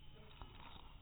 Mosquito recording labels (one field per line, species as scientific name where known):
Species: mosquito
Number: one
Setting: cup